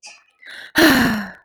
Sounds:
Sigh